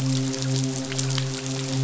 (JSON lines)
{"label": "biophony, midshipman", "recorder": "SoundTrap 500"}